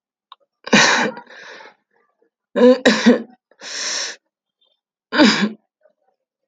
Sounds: Sneeze